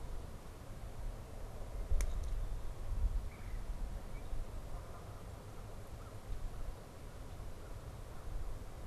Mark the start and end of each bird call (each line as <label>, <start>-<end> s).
Red-bellied Woodpecker (Melanerpes carolinus), 3.2-3.8 s